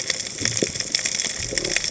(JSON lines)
{"label": "biophony", "recorder": "HydroMoth"}